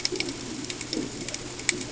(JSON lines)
{"label": "ambient", "recorder": "HydroMoth"}